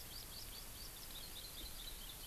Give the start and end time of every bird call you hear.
[0.00, 0.94] Hawaii Amakihi (Chlorodrepanis virens)
[0.00, 2.27] Eurasian Skylark (Alauda arvensis)

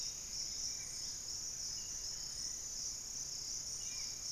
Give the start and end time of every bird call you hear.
[0.00, 0.93] Pygmy Antwren (Myrmotherula brachyura)
[0.00, 4.32] Spot-winged Antshrike (Pygiptila stellaris)
[0.03, 2.13] Collared Trogon (Trogon collaris)
[0.43, 1.33] unidentified bird

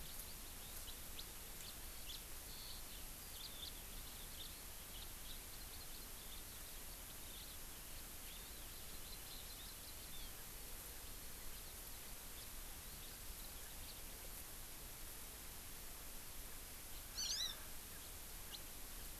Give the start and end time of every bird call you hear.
[0.00, 10.33] Eurasian Skylark (Alauda arvensis)
[1.13, 1.23] House Finch (Haemorhous mexicanus)
[1.63, 1.73] House Finch (Haemorhous mexicanus)
[2.03, 2.23] House Finch (Haemorhous mexicanus)
[3.33, 3.73] House Finch (Haemorhous mexicanus)
[12.33, 12.43] House Finch (Haemorhous mexicanus)
[13.83, 13.93] House Finch (Haemorhous mexicanus)
[17.13, 17.53] Hawaii Amakihi (Chlorodrepanis virens)
[17.23, 17.33] House Finch (Haemorhous mexicanus)
[18.43, 18.53] House Finch (Haemorhous mexicanus)

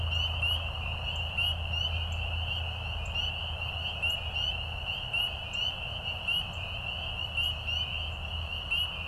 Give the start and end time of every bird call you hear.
[1.10, 1.30] Northern Cardinal (Cardinalis cardinalis)
[2.00, 2.20] Northern Cardinal (Cardinalis cardinalis)
[3.00, 3.10] Northern Cardinal (Cardinalis cardinalis)
[4.00, 4.20] Northern Cardinal (Cardinalis cardinalis)
[5.40, 5.70] Northern Cardinal (Cardinalis cardinalis)
[6.40, 6.60] Northern Cardinal (Cardinalis cardinalis)
[7.40, 7.50] Northern Cardinal (Cardinalis cardinalis)

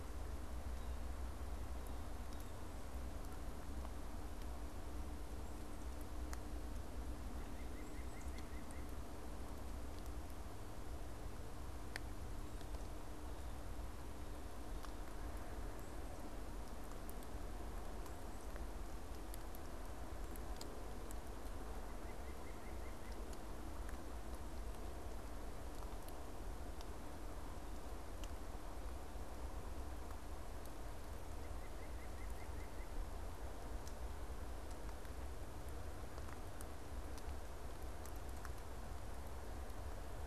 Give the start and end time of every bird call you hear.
[7.12, 9.03] White-breasted Nuthatch (Sitta carolinensis)
[21.52, 23.23] White-breasted Nuthatch (Sitta carolinensis)
[31.23, 33.12] White-breasted Nuthatch (Sitta carolinensis)

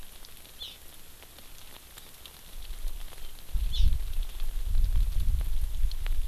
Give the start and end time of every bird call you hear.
[0.60, 0.70] Hawaii Amakihi (Chlorodrepanis virens)
[3.70, 3.90] Hawaii Amakihi (Chlorodrepanis virens)

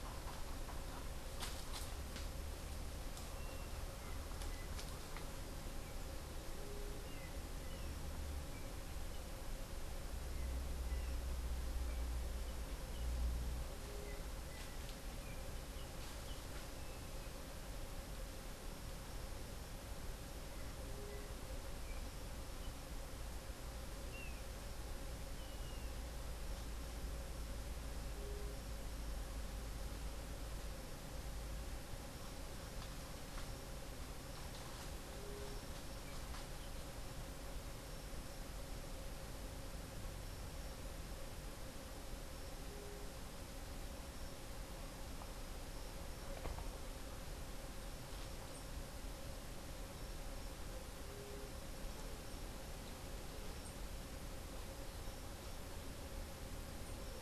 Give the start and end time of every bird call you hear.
[6.92, 17.42] Yellow-backed Oriole (Icterus chrysater)
[35.12, 35.62] White-tipped Dove (Leptotila verreauxi)

